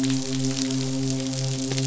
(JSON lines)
{"label": "biophony, midshipman", "recorder": "SoundTrap 500"}